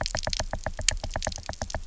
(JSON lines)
{"label": "biophony, knock", "recorder": "SoundTrap 300"}